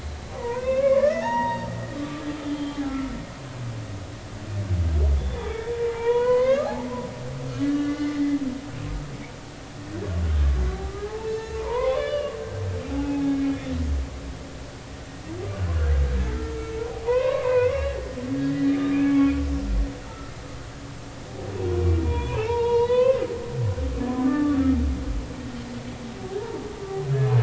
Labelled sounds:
0.3	3.2	humpback whale, 0.80 to 6.7 kHz
5.2	6.7	humpback whale, 0.83 to 4.8 kHz
7.4	8.2	humpback whale, 1.1 to 6.2 kHz
11.0	12.4	humpback whale, 0.80 to 6.8 kHz
12.9	13.7	humpback whale, 0.80 to 2.6 kHz
16.3	19.4	humpback whale, 0.90 to 2.9 kHz
20.0	20.3	humpback whale, 1.2 to 1.5 kHz
22.0	23.3	humpback whale, 0.80 to 4.1 kHz
24.2	24.6	humpback whale, 1.1 to 1.9 kHz

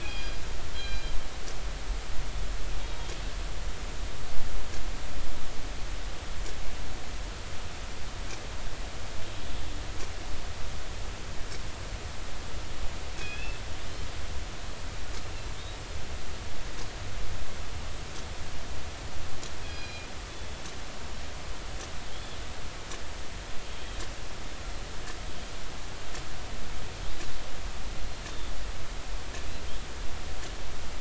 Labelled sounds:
0.0	1.2	killer whale, northern resident, G clan, call N24ii, 1.5 to 4.9 kHz
13.1	13.6	killer whale, northern resident, G clan, call N24ii, 1.5 to 3.6 kHz
19.6	20.1	killer whale, northern resident, G clan, call N24ii, 1.6 to 5.0 kHz
22.1	22.4	killer whale, northern resident, 3.0 to 3.5 kHz
23.6	24.0	killer whale, northern resident, 3.1 to 3.4 kHz

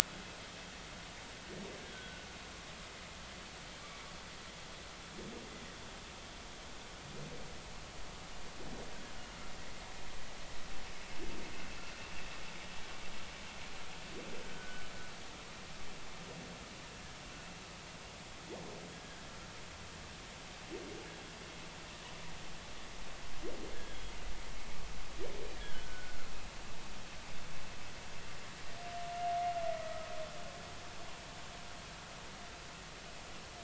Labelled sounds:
1.9	2.2	humpback whale, 1.4 to 1.6 kHz
14.5	14.8	humpback whale, 1.4 to 1.5 kHz
23.7	24.1	humpback whale, 1.5 to 3.4 kHz
25.5	26.2	humpback whale, 1.4 to 1.8 kHz
29.8	30.1	humpback whale, 1.2 to 1.3 kHz

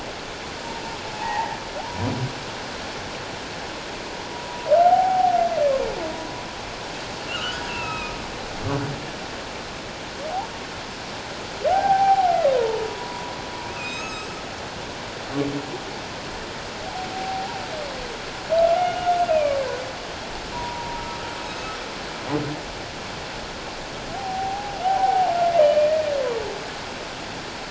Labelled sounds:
1.2	1.6	humpback whale, 0.78 to 2.0 kHz
4.3	5.3	humpback whale, 0.78 to 1.0 kHz
7.3	8.2	humpback whale, 1.2 to 5.2 kHz
11.7	13.3	humpback whale, 0.78 to 1.6 kHz
13.7	14.4	humpback whale, 1.2 to 7.8 kHz
17.1	17.6	humpback whale, 0.78 to 1.0 kHz
18.8	19.6	humpback whale, 1.3 to 2.9 kHz
20.5	21.0	humpback whale, 0.91 to 1.1 kHz
21.4	21.7	humpback whale, 6.3 to 6.5 kHz
24.1	26.0	humpback whale, 0.78 to 2.6 kHz

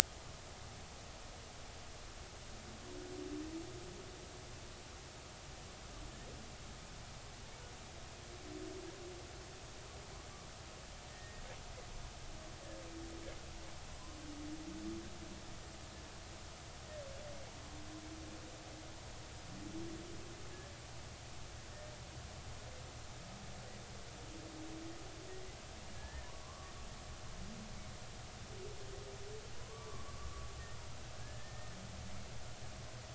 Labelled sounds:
11.1	11.4	humpback whale, 1.8 to 1.9 kHz
26.0	26.7	humpback whale, 0.93 to 1.9 kHz
29.5	30.3	humpback whale, 0.96 to 1.2 kHz
31.2	31.8	humpback whale, 1.6 to 1.9 kHz

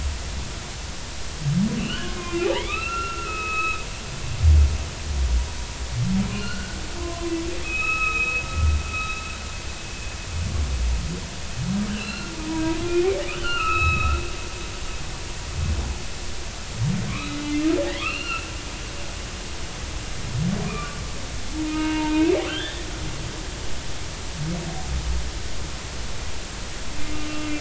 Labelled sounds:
1.8	3.8	humpback whale, 1.1 to 4.1 kHz
6.3	8.4	humpback whale, 0.96 to 3.9 kHz
11.9	13.1	humpback whale, 1.3 to 4.3 kHz
13.4	14.2	humpback whale, 1.2 to 4.4 kHz
17.1	18.5	humpback whale, 0.96 to 4.4 kHz
20.7	21.0	humpback whale, 1.0 to 1.3 kHz
21.5	22.8	humpback whale, 0.83 to 3.7 kHz
27.3	27.6	humpback whale, 2.6 to 2.8 kHz

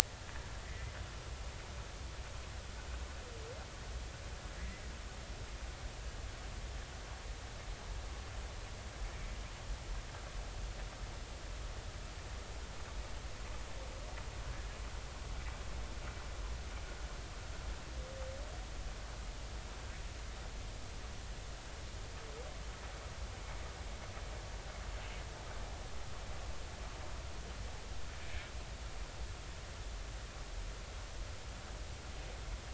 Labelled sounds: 0.6	0.9	humpback whale, 1.9 to 2.1 kHz
4.6	4.8	humpback whale, 1.8 to 2.1 kHz

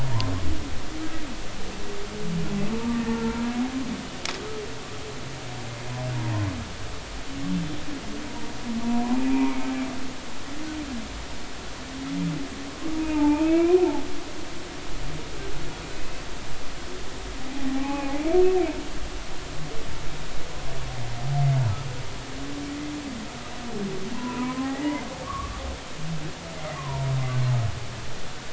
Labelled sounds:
0.1	0.3	humpback whale, 0.90 to 1.1 kHz
2.8	3.2	humpback whale, 1.1 to 1.9 kHz
8.3	8.5	humpback whale, 0.90 to 0.99 kHz
9.2	9.7	humpback whale, 0.80 to 2.6 kHz
12.9	14.0	humpback whale, 0.80 to 2.8 kHz
17.7	18.2	humpback whale, 0.80 to 2.6 kHz
24.1	25.6	humpback whale, 0.80 to 2.1 kHz
26.7	27.1	humpback whale, 0.90 to 1.2 kHz

